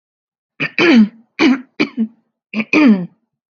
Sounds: Throat clearing